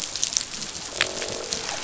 {"label": "biophony, croak", "recorder": "SoundTrap 500"}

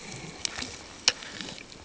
{"label": "ambient", "recorder": "HydroMoth"}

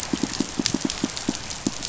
{"label": "biophony, pulse", "recorder": "SoundTrap 500"}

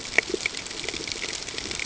{"label": "ambient", "recorder": "HydroMoth"}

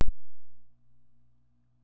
{"label": "biophony", "recorder": "SoundTrap 600"}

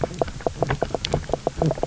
{"label": "biophony, knock croak", "recorder": "SoundTrap 300"}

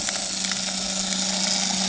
{"label": "anthrophony, boat engine", "recorder": "HydroMoth"}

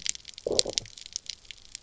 {"label": "biophony, low growl", "recorder": "SoundTrap 300"}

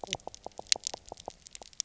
{"label": "biophony, knock croak", "recorder": "SoundTrap 300"}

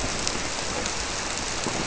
{"label": "biophony", "recorder": "SoundTrap 300"}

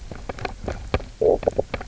{"label": "biophony, knock croak", "recorder": "SoundTrap 300"}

